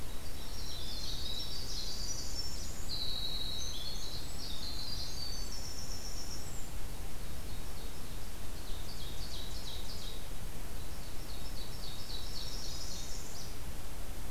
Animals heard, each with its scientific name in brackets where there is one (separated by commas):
Northern Parula (Setophaga americana), Winter Wren (Troglodytes hiemalis), Ovenbird (Seiurus aurocapilla), Black-throated Green Warbler (Setophaga virens)